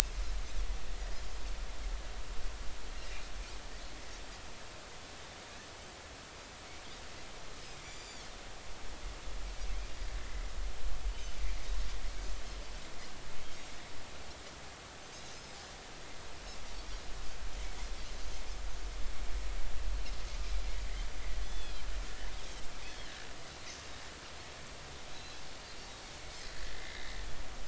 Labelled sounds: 7.8	8.3	Pacific white-sided dolphin, 4.1 to 7.2 kHz
21.4	21.8	Pacific white-sided dolphin, 3.0 to 3.5 kHz
22.9	23.1	Pacific white-sided dolphin, 4.0 to 4.4 kHz
25.1	25.4	Pacific white-sided dolphin, 3.8 to 4.1 kHz
26.7	27.1	Pacific white-sided dolphin, 2.0 to 2.1 kHz

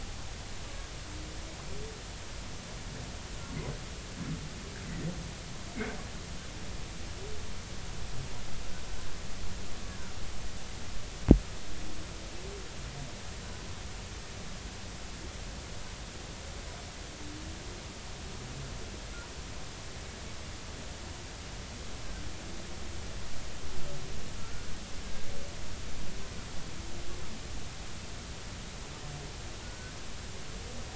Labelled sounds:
24.4	24.7	humpback whale, 1.3 to 1.5 kHz
25.0	25.3	humpback whale, 1.6 to 1.7 kHz
29.6	29.9	humpback whale, 1.4 to 1.6 kHz

